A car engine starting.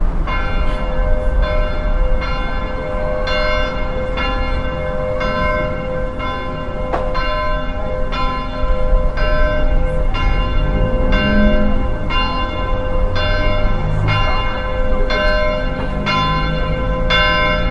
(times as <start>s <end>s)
11.0s 14.5s